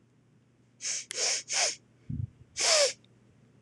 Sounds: Sniff